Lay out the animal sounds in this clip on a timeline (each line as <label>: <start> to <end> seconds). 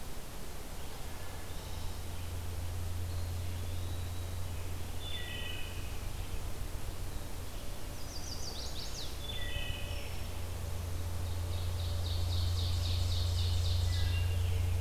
Eastern Wood-Pewee (Contopus virens): 2.8 to 4.7 seconds
Wood Thrush (Hylocichla mustelina): 4.9 to 5.9 seconds
Chestnut-sided Warbler (Setophaga pensylvanica): 7.7 to 9.3 seconds
Wood Thrush (Hylocichla mustelina): 9.1 to 10.0 seconds
Ovenbird (Seiurus aurocapilla): 11.0 to 14.3 seconds
Wood Thrush (Hylocichla mustelina): 13.6 to 14.8 seconds